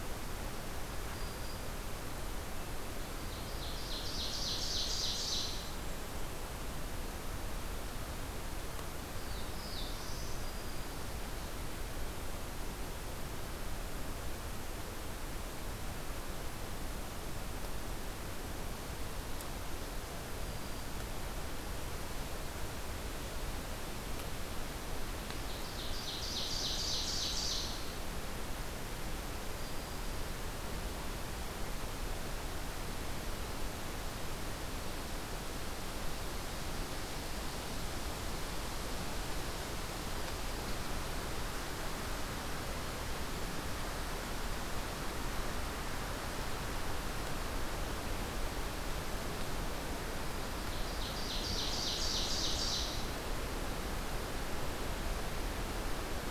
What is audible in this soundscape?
Black-throated Green Warbler, Ovenbird, Black-throated Blue Warbler